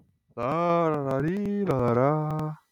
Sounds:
Sigh